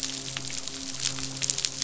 {"label": "biophony, midshipman", "recorder": "SoundTrap 500"}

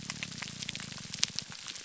{"label": "biophony, grouper groan", "recorder": "SoundTrap 300"}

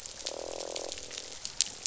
{"label": "biophony, croak", "recorder": "SoundTrap 500"}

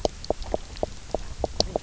{"label": "biophony, knock croak", "recorder": "SoundTrap 300"}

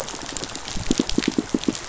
{"label": "biophony", "recorder": "SoundTrap 500"}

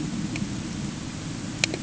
{"label": "anthrophony, boat engine", "recorder": "HydroMoth"}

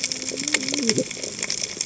{"label": "biophony, cascading saw", "recorder": "HydroMoth"}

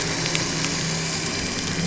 {"label": "anthrophony, boat engine", "recorder": "SoundTrap 300"}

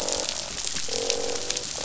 {"label": "biophony, croak", "recorder": "SoundTrap 500"}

